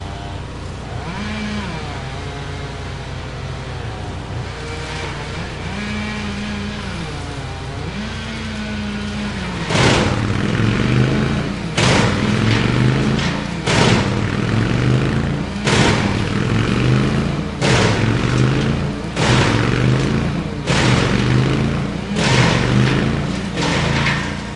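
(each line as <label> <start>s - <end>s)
A chainsaw is cutting down trees. 0.0s - 24.6s
A loud wood crusher is repeatedly crushing wood. 9.7s - 24.6s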